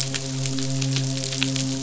{"label": "biophony, midshipman", "recorder": "SoundTrap 500"}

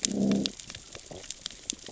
{"label": "biophony, growl", "recorder": "SoundTrap 600 or HydroMoth"}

